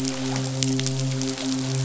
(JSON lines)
{"label": "biophony, midshipman", "recorder": "SoundTrap 500"}